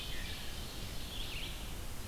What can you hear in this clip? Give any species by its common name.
Wood Thrush, Ovenbird, Red-eyed Vireo